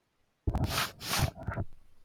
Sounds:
Sniff